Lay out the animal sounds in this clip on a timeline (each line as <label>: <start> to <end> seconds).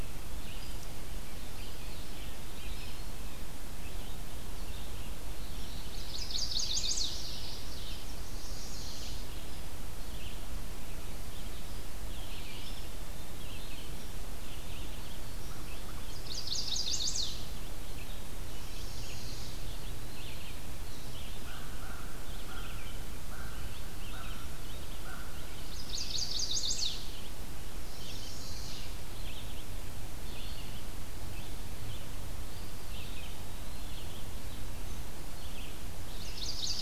Red-eyed Vireo (Vireo olivaceus): 0.0 to 36.8 seconds
Eastern Wood-Pewee (Contopus virens): 1.4 to 3.2 seconds
Chestnut-sided Warbler (Setophaga pensylvanica): 5.8 to 7.5 seconds
Yellow-rumped Warbler (Setophaga coronata): 6.9 to 8.1 seconds
Chestnut-sided Warbler (Setophaga pensylvanica): 8.0 to 9.2 seconds
Eastern Wood-Pewee (Contopus virens): 12.4 to 13.9 seconds
Chestnut-sided Warbler (Setophaga pensylvanica): 16.0 to 17.6 seconds
Chestnut-sided Warbler (Setophaga pensylvanica): 18.4 to 19.7 seconds
Eastern Wood-Pewee (Contopus virens): 19.5 to 20.5 seconds
American Crow (Corvus brachyrhynchos): 21.3 to 27.5 seconds
Chestnut-sided Warbler (Setophaga pensylvanica): 25.7 to 27.1 seconds
Chestnut-sided Warbler (Setophaga pensylvanica): 27.8 to 28.9 seconds
Eastern Wood-Pewee (Contopus virens): 32.4 to 34.2 seconds
Chestnut-sided Warbler (Setophaga pensylvanica): 36.2 to 36.8 seconds